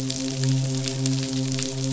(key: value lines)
label: biophony, midshipman
recorder: SoundTrap 500